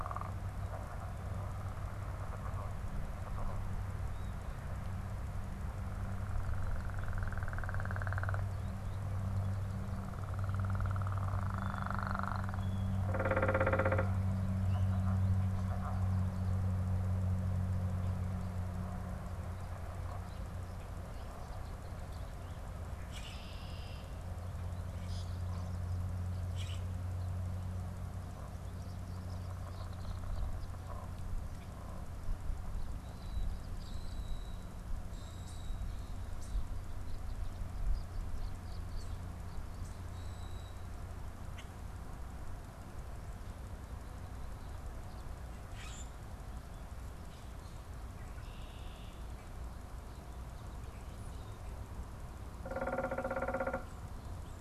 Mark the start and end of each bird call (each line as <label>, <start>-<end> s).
unidentified bird, 12.9-14.2 s
Red-winged Blackbird (Agelaius phoeniceus), 22.8-24.2 s
Common Grackle (Quiscalus quiscula), 22.9-23.5 s
Common Grackle (Quiscalus quiscula), 24.9-26.9 s
Tree Swallow (Tachycineta bicolor), 28.5-30.7 s
Common Grackle (Quiscalus quiscula), 33.1-35.9 s
Tree Swallow (Tachycineta bicolor), 37.6-39.4 s
Common Grackle (Quiscalus quiscula), 40.1-40.8 s
Common Grackle (Quiscalus quiscula), 45.5-46.2 s
Red-winged Blackbird (Agelaius phoeniceus), 47.9-49.2 s
unidentified bird, 52.5-54.0 s